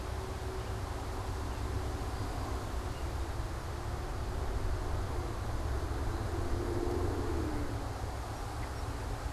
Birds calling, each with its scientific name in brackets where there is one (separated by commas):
Song Sparrow (Melospiza melodia)